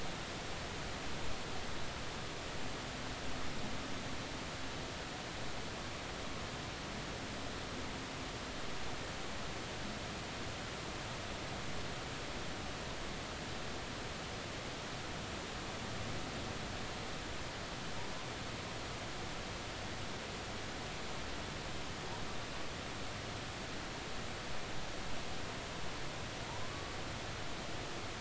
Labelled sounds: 26.6	26.9	humpback whale, 0.99 to 1.2 kHz

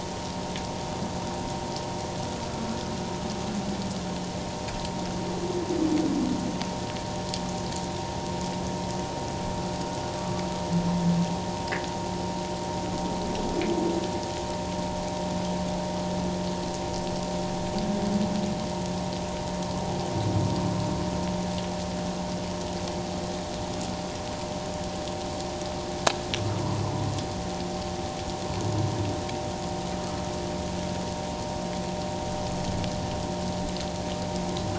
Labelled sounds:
10.2	10.4	humpback whale, 1.1 to 1.2 kHz

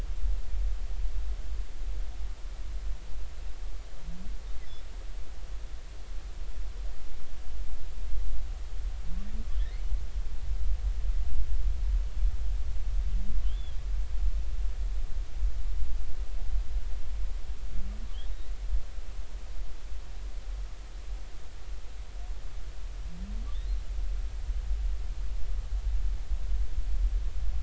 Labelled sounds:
13.4	13.8	humpback whale, 2.8 to 3.6 kHz

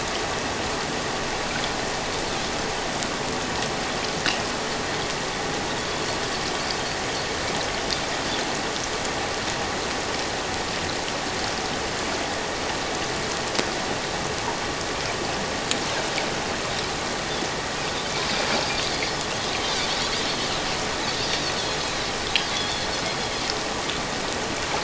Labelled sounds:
22.5	22.9	Pacific white-sided dolphin, 3.3 to 4.5 kHz

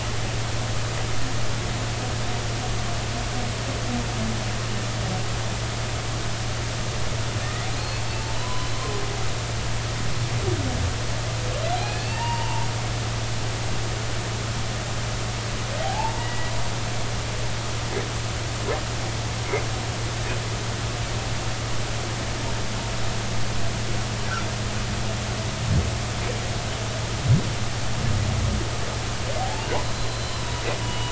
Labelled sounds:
7.4	8.0	humpback whale, 1.8 to 4.4 kHz
8.3	8.8	humpback whale, 0.96 to 4.1 kHz
11.7	12.7	humpback whale, 0.83 to 4.2 kHz
15.8	16.5	humpback whale, 0.80 to 2.0 kHz
29.4	31.1	humpback whale, 0.80 to 4.2 kHz

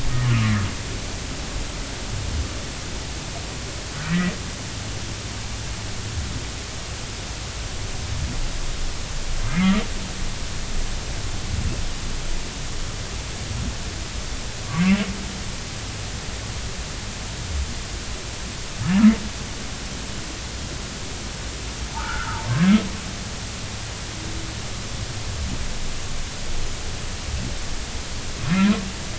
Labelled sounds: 0.3	0.5	humpback whale, 1.1 to 1.3 kHz
4.0	4.3	humpback whale, 1.8 to 2.0 kHz
9.5	9.8	humpback whale, 1.1 to 2.2 kHz
14.7	15.1	humpback whale, 0.93 to 2.8 kHz
22.0	22.4	humpback whale, 1.1 to 1.6 kHz
28.6	28.8	humpback whale, 0.93 to 1.1 kHz

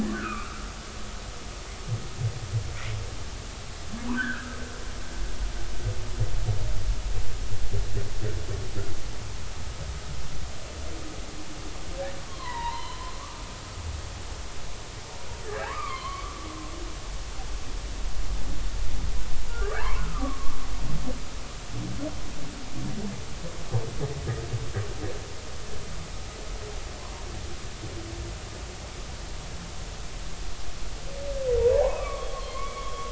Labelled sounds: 0.0	0.7	humpback whale, 1.1 to 2.7 kHz
4.1	4.6	humpback whale, 1.2 to 1.8 kHz
12.3	13.4	humpback whale, 0.86 to 4.2 kHz
15.5	16.4	humpback whale, 0.80 to 3.3 kHz
19.5	20.1	humpback whale, 0.83 to 1.7 kHz
21.0	21.6	humpback whale, 1.0 to 1.5 kHz
31.6	33.1	humpback whale, 0.80 to 4.4 kHz

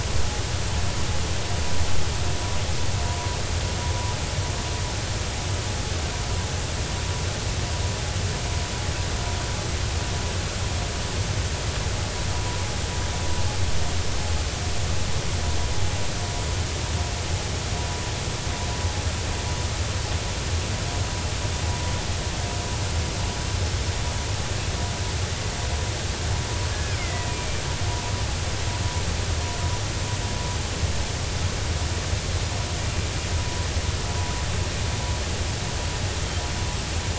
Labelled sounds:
26.7	27.5	killer whale, 1.6 to 2.6 kHz

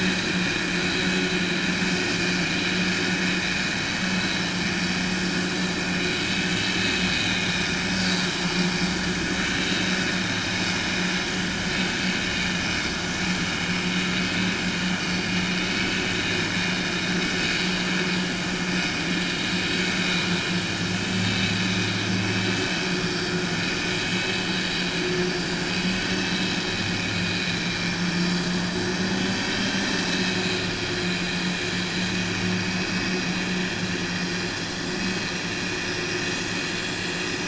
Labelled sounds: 6.4	7.6	vessel noise, 2.0 to 4.5 kHz

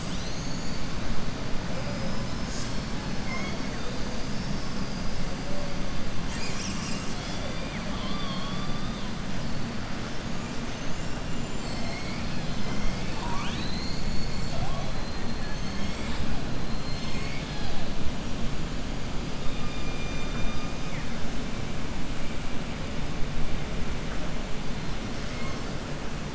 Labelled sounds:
3.1	3.9	killer whale, southern resident, 0.69 to 5.4 kHz
4.3	5.1	killer whale, southern resident, 4.8 to 5.6 kHz

